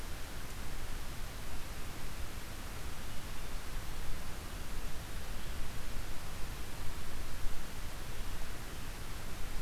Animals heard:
forest ambience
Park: Marsh-Billings-Rockefeller National Historical Park